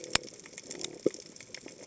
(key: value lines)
label: biophony
recorder: HydroMoth